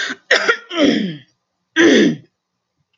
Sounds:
Throat clearing